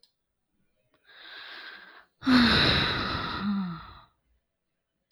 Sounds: Sigh